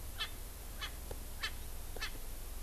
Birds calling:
Erckel's Francolin (Pternistis erckelii)

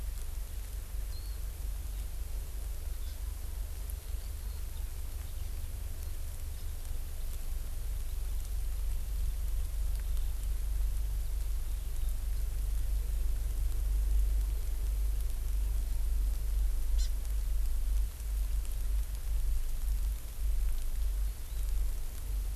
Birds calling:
Hawaii Amakihi (Chlorodrepanis virens), Warbling White-eye (Zosterops japonicus)

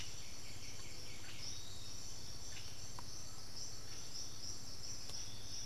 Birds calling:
Undulated Tinamou (Crypturellus undulatus), Blue-headed Parrot (Pionus menstruus), Piratic Flycatcher (Legatus leucophaius), White-winged Becard (Pachyramphus polychopterus)

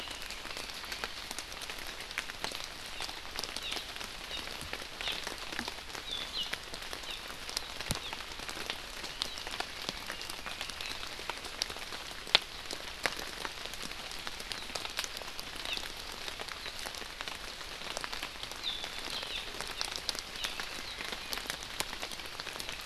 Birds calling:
Hawaii Amakihi (Chlorodrepanis virens)

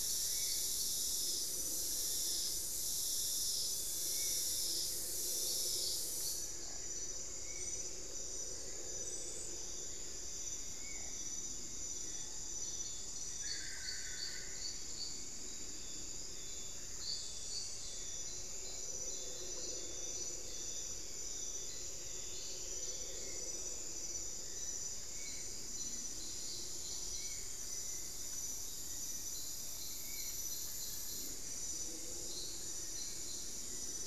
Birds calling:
Long-billed Woodcreeper (Nasica longirostris), Solitary Black Cacique (Cacicus solitarius), Spot-winged Antshrike (Pygiptila stellaris)

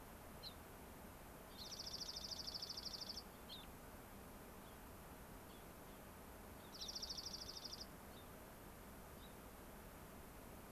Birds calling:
Gray-crowned Rosy-Finch (Leucosticte tephrocotis), Dark-eyed Junco (Junco hyemalis)

